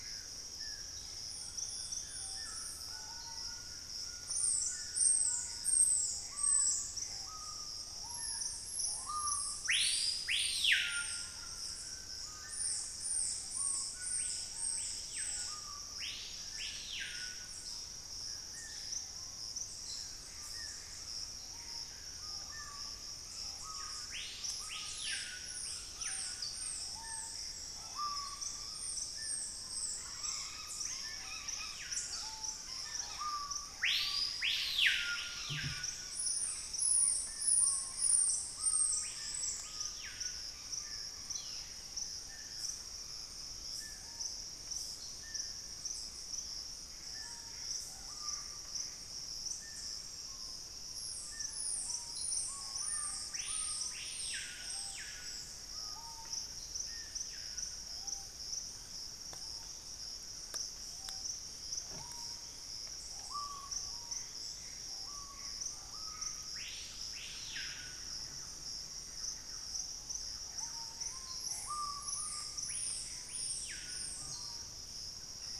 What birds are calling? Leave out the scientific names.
White-throated Toucan, Dusky-throated Antshrike, Screaming Piha, Gray Antbird, Thrush-like Wren